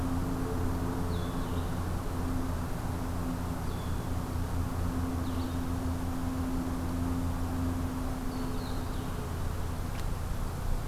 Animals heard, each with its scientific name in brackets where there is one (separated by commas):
Blue-headed Vireo (Vireo solitarius)